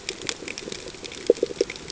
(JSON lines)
{"label": "ambient", "recorder": "HydroMoth"}